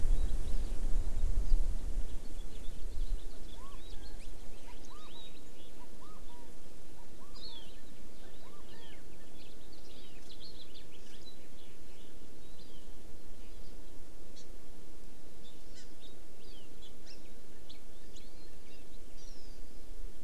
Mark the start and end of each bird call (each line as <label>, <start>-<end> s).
House Finch (Haemorhous mexicanus), 2.2-5.7 s
Hawaii Amakihi (Chlorodrepanis virens), 7.4-7.7 s
House Finch (Haemorhous mexicanus), 8.7-12.2 s
Hawaii Amakihi (Chlorodrepanis virens), 12.6-12.9 s
Hawaii Amakihi (Chlorodrepanis virens), 14.3-14.4 s
Hawaii Amakihi (Chlorodrepanis virens), 15.7-15.8 s
Hawaii Amakihi (Chlorodrepanis virens), 16.4-16.7 s
Hawaii Amakihi (Chlorodrepanis virens), 17.0-17.2 s
Hawaii Amakihi (Chlorodrepanis virens), 19.1-19.6 s